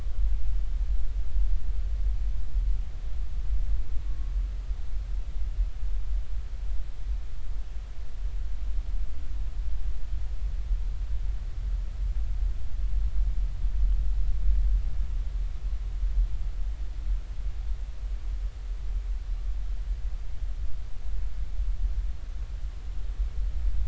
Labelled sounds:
4.1	4.3	humpback whale, 1.1 to 1.2 kHz

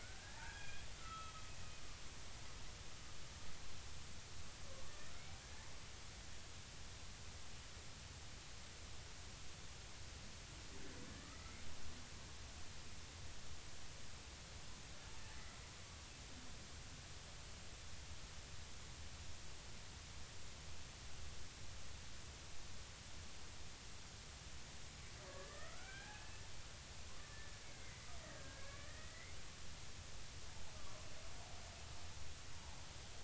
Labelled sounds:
0.0	1.5	killer whale, Bigg's (transient), 0.80 to 3.4 kHz
5.4	5.7	killer whale, Bigg's (transient), 1.6 to 2.0 kHz
25.3	26.4	killer whale, Bigg's (transient), 1.1 to 2.6 kHz
27.7	29.3	killer whale, Bigg's (transient), 1.6 to 2.2 kHz
30.8	31.0	killer whale, Bigg's (transient), 0.99 to 1.2 kHz

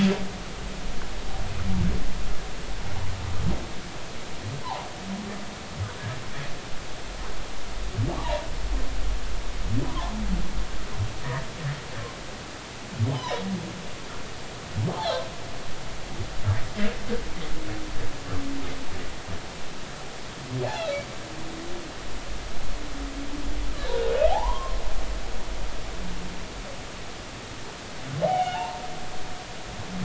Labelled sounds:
4.6	4.9	humpback whale, 0.80 to 1.1 kHz
8.1	8.4	humpback whale, 0.83 to 1.0 kHz
9.8	10.2	humpback whale, 0.80 to 1.2 kHz
13.1	13.4	humpback whale, 0.83 to 3.1 kHz
20.6	21.0	humpback whale, 0.80 to 4.4 kHz
24.3	24.8	humpback whale, 0.80 to 1.1 kHz
28.2	28.8	humpback whale, 0.80 to 3.0 kHz

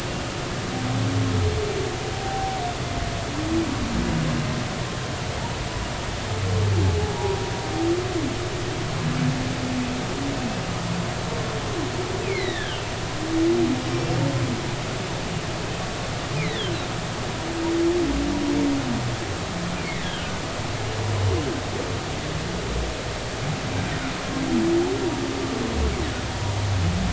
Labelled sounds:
2.1	2.6	humpback whale, 0.80 to 0.83 kHz
12.2	12.9	humpback whale, 1.5 to 4.4 kHz
13.9	14.1	humpback whale, 5.5 to 5.6 kHz
16.4	16.7	humpback whale, 1.6 to 4.2 kHz
20.0	20.4	humpback whale, 1.4 to 1.7 kHz

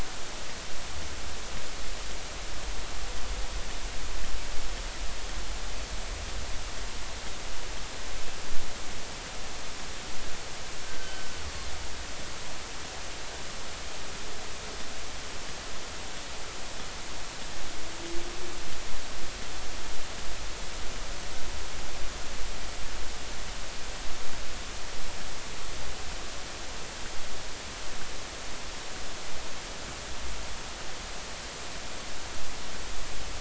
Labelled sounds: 11.9	12.3	killer whale, northern resident, G clan, GG subclan, call N23ii, 1.5 to 1.6 kHz

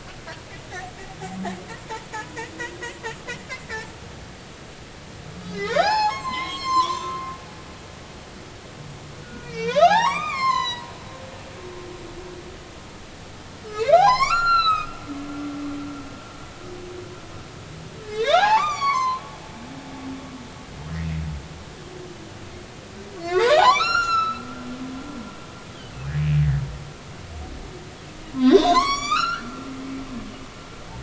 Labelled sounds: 2.2	2.5	humpback whale, 0.83 to 1.0 kHz
3.7	3.9	humpback whale, 7.4 to 7.6 kHz
5.4	7.3	humpback whale, 0.80 to 7.6 kHz
9.2	10.9	humpback whale, 0.80 to 7.9 kHz
13.7	14.9	humpback whale, 0.80 to 7.2 kHz
18.0	19.2	humpback whale, 0.80 to 6.1 kHz
23.2	24.5	humpback whale, 0.80 to 7.3 kHz
28.3	29.6	humpback whale, 0.93 to 8.0 kHz

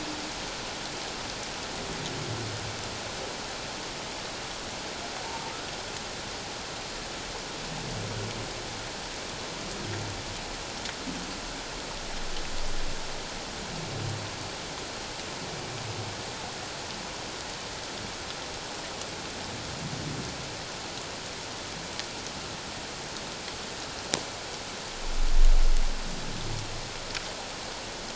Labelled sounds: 5.2	5.5	humpback whale, 0.84 to 1.0 kHz

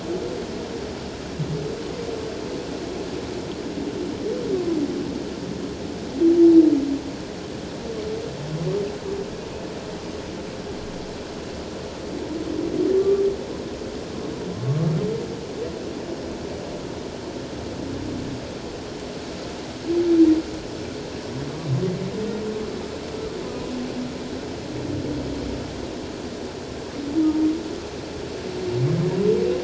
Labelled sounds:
13.0	13.2	humpback whale, 1.1 to 1.2 kHz
27.2	27.5	humpback whale, 0.91 to 0.97 kHz

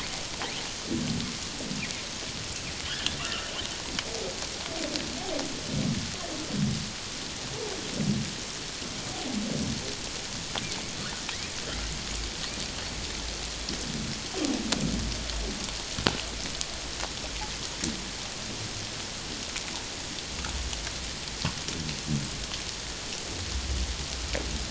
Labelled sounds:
3.2	3.5	humpback whale, 1.1 to 1.5 kHz

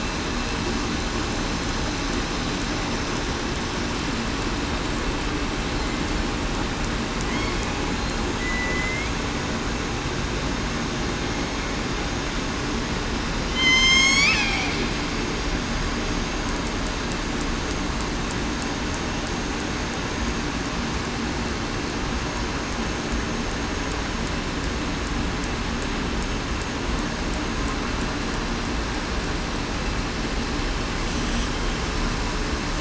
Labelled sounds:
7.9	9.1	killer whale, southern resident, 1.9 to 4.2 kHz
13.5	14.0	killer whale, southern resident, 2.0 to 2.2 kHz
14.2	14.7	killer whale, southern resident, 2.3 to 2.6 kHz

